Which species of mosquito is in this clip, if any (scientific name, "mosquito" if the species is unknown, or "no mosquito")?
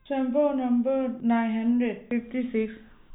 no mosquito